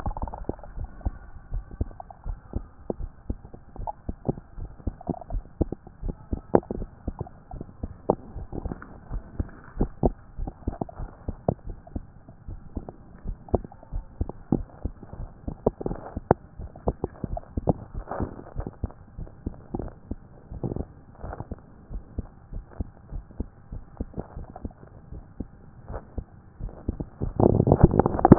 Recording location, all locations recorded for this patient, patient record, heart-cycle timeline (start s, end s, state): tricuspid valve (TV)
aortic valve (AV)+pulmonary valve (PV)+tricuspid valve (TV)+mitral valve (MV)
#Age: Child
#Sex: Male
#Height: 144.0 cm
#Weight: 44.8 kg
#Pregnancy status: False
#Murmur: Absent
#Murmur locations: nan
#Most audible location: nan
#Systolic murmur timing: nan
#Systolic murmur shape: nan
#Systolic murmur grading: nan
#Systolic murmur pitch: nan
#Systolic murmur quality: nan
#Diastolic murmur timing: nan
#Diastolic murmur shape: nan
#Diastolic murmur grading: nan
#Diastolic murmur pitch: nan
#Diastolic murmur quality: nan
#Outcome: Normal
#Campaign: 2014 screening campaign
0.00	0.76	unannotated
0.76	0.88	S1
0.88	1.04	systole
1.04	1.12	S2
1.12	1.52	diastole
1.52	1.64	S1
1.64	1.80	systole
1.80	1.88	S2
1.88	2.26	diastole
2.26	2.38	S1
2.38	2.54	systole
2.54	2.64	S2
2.64	3.00	diastole
3.00	3.10	S1
3.10	3.28	systole
3.28	3.38	S2
3.38	3.78	diastole
3.78	3.90	S1
3.90	4.08	systole
4.08	4.16	S2
4.16	4.58	diastole
4.58	4.70	S1
4.70	4.86	systole
4.86	4.94	S2
4.94	5.30	diastole
5.30	5.44	S1
5.44	5.60	systole
5.60	5.70	S2
5.70	6.04	diastole
6.04	6.16	S1
6.16	6.30	systole
6.30	6.40	S2
6.40	6.76	diastole
6.76	6.88	S1
6.88	7.06	systole
7.06	7.16	S2
7.16	7.51	diastole
7.51	28.38	unannotated